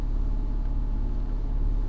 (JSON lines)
{"label": "anthrophony, boat engine", "recorder": "SoundTrap 300"}